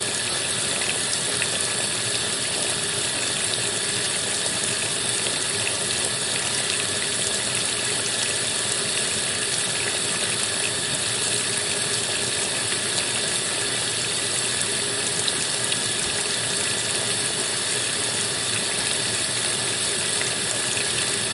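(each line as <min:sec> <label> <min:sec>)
0:00.0 A close recording of continuous tap water flowing. 0:21.3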